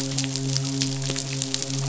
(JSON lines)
{"label": "biophony, midshipman", "recorder": "SoundTrap 500"}